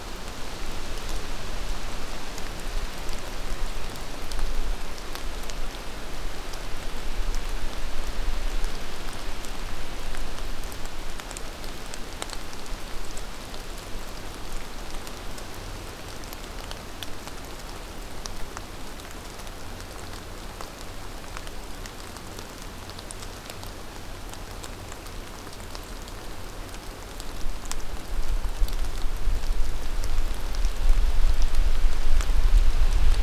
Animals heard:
forest ambience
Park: Acadia National Park